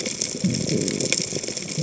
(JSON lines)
{"label": "biophony", "recorder": "HydroMoth"}